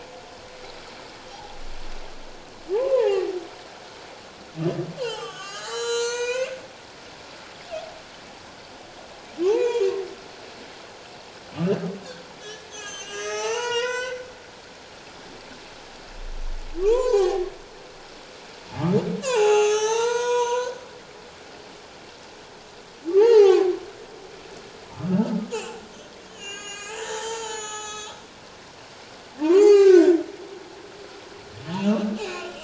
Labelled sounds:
2.7	3.2	humpback whale, 0.78 to 1.1 kHz
5.0	6.6	humpback whale, 0.78 to 7.8 kHz
9.5	9.9	humpback whale, 0.78 to 2.5 kHz
12.4	14.2	humpback whale, 0.81 to 7.6 kHz
16.8	17.5	humpback whale, 0.78 to 6.3 kHz
19.2	20.8	humpback whale, 0.78 to 7.8 kHz
23.2	23.8	humpback whale, 0.78 to 1.5 kHz
24.9	25.2	humpback whale, 1.1 to 1.3 kHz
25.5	28.1	humpback whale, 0.81 to 8.0 kHz
29.4	30.2	humpback whale, 0.78 to 6.7 kHz
31.8	32.6	humpback whale, 1.3 to 2.9 kHz

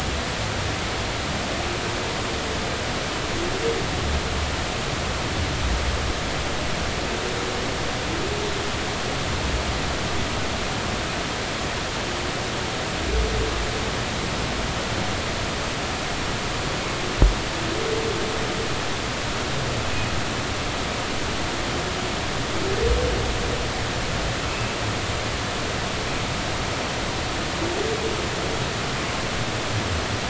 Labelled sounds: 24.5	24.8	humpback whale, 2.5 to 2.7 kHz

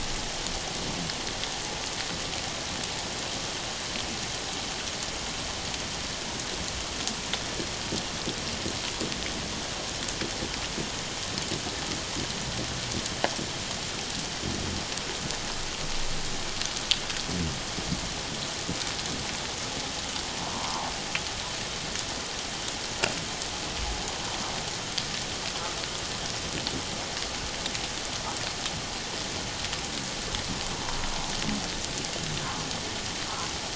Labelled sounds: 20.5	20.9	humpback whale, 0.78 to 1.2 kHz

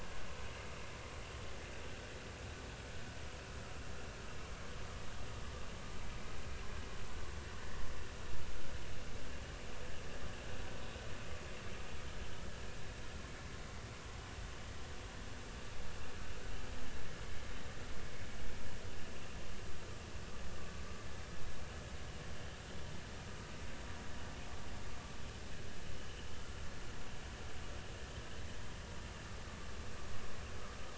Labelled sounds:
7.4	7.8	vessel noise, 1.7 to 2.0 kHz

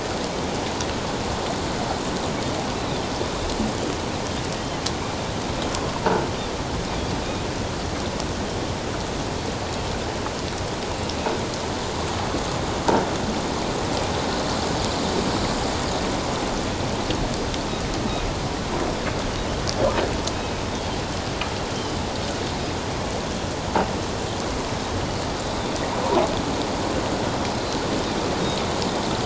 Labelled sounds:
2.8	3.0	Pacific white-sided dolphin, 3.4 to 4.0 kHz
20.3	21.0	Pacific white-sided dolphin, 2.5 to 3.4 kHz

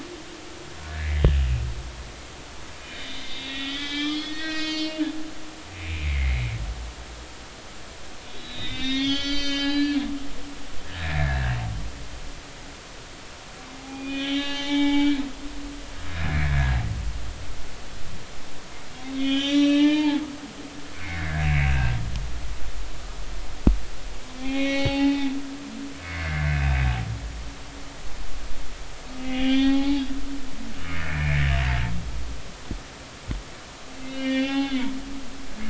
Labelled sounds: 2.9	5.0	humpback whale, 1.2 to 6.7 kHz
5.7	6.4	humpback whale, 2.0 to 2.7 kHz
8.3	10.0	humpback whale, 1.3 to 8.0 kHz
10.9	11.4	humpback whale, 1.5 to 1.9 kHz
13.8	15.2	humpback whale, 0.80 to 6.0 kHz
19.1	20.2	humpback whale, 0.80 to 6.1 kHz
20.9	21.9	humpback whale, 1.4 to 2.8 kHz
24.4	26.8	humpback whale, 0.80 to 5.8 kHz
29.2	30.0	humpback whale, 0.80 to 4.4 kHz
31.1	31.6	humpback whale, 1.6 to 2.5 kHz
34.0	34.8	humpback whale, 0.80 to 5.0 kHz

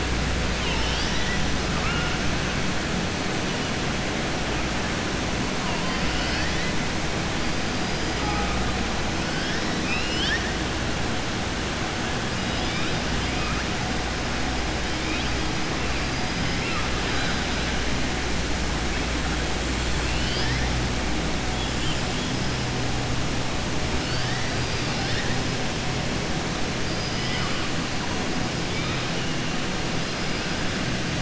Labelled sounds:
9.7	10.5	killer whale, southern resident, 1.6 to 5.9 kHz
26.8	27.6	killer whale, southern resident, 1.1 to 5.2 kHz

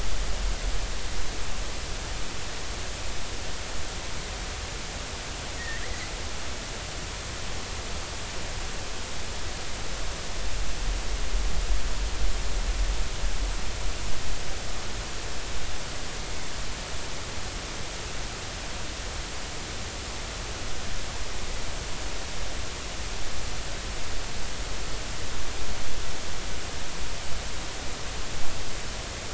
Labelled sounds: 5.6	6.1	killer whale, northern resident, G clan, 1.6 to 2.2 kHz

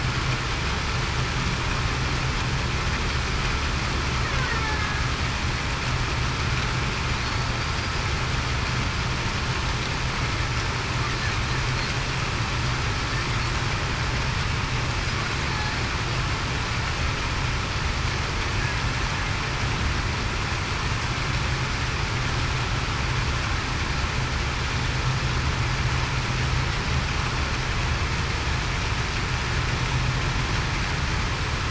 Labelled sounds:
4.6	5.1	killer whale, Bigg's (transient), 1.6 to 1.8 kHz

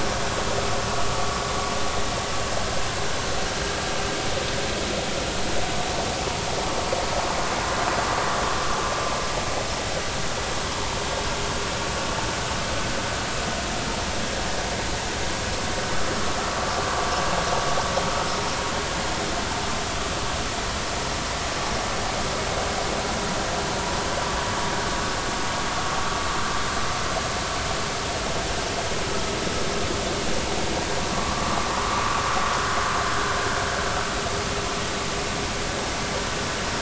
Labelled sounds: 31.1	32.0	vessel noise, 0.93 to 1.3 kHz

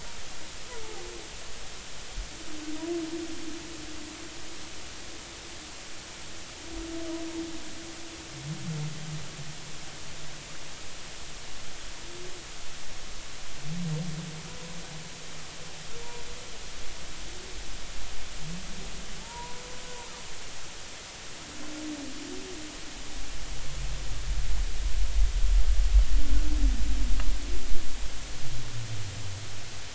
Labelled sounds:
19.2	19.6	humpback whale, 0.83 to 1.0 kHz

